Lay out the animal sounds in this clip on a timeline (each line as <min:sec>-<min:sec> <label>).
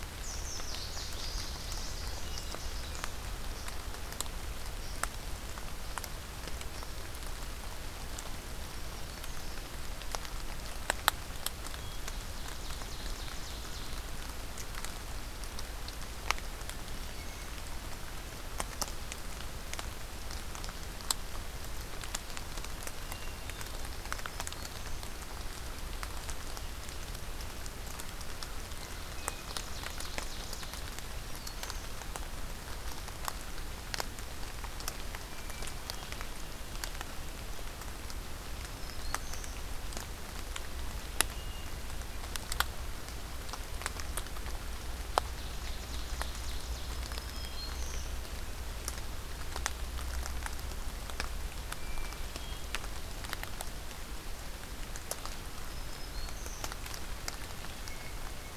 0:00.0-0:03.1 Louisiana Waterthrush (Parkesia motacilla)
0:01.9-0:02.9 Hermit Thrush (Catharus guttatus)
0:08.3-0:09.7 Black-throated Green Warbler (Setophaga virens)
0:11.4-0:14.0 Ovenbird (Seiurus aurocapilla)
0:22.8-0:23.9 Hermit Thrush (Catharus guttatus)
0:23.9-0:25.1 Black-throated Green Warbler (Setophaga virens)
0:28.9-0:29.9 Hermit Thrush (Catharus guttatus)
0:29.0-0:30.8 Ovenbird (Seiurus aurocapilla)
0:30.7-0:31.9 Black-throated Green Warbler (Setophaga virens)
0:35.1-0:36.4 Hermit Thrush (Catharus guttatus)
0:38.3-0:39.7 Black-throated Green Warbler (Setophaga virens)
0:41.0-0:42.3 Hermit Thrush (Catharus guttatus)
0:45.1-0:47.0 Ovenbird (Seiurus aurocapilla)
0:46.7-0:48.1 Black-throated Green Warbler (Setophaga virens)
0:51.5-0:52.8 Hermit Thrush (Catharus guttatus)
0:55.5-0:56.7 Black-throated Green Warbler (Setophaga virens)
0:57.6-0:58.5 Hermit Thrush (Catharus guttatus)